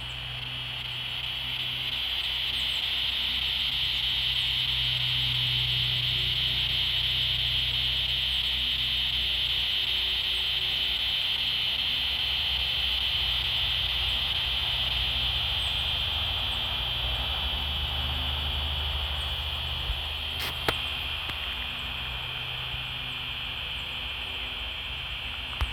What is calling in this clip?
Diceroprocta grossa, a cicada